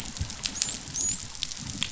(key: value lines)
label: biophony, dolphin
recorder: SoundTrap 500